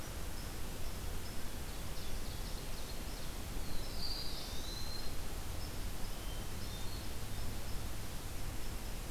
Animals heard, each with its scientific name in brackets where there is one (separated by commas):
Hermit Thrush (Catharus guttatus), Ovenbird (Seiurus aurocapilla), Black-throated Blue Warbler (Setophaga caerulescens), Eastern Wood-Pewee (Contopus virens)